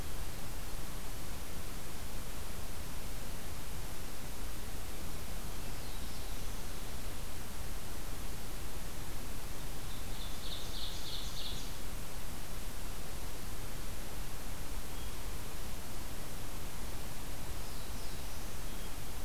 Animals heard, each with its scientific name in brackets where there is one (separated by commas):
Hermit Thrush (Catharus guttatus), Black-throated Blue Warbler (Setophaga caerulescens), Ovenbird (Seiurus aurocapilla)